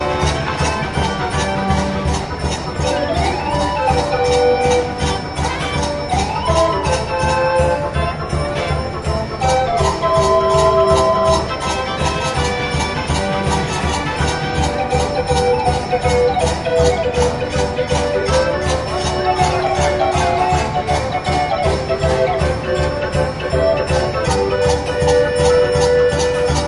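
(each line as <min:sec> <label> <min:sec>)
0:00.0 A distant street organ plays softly with a regular rhythmic flow. 0:26.7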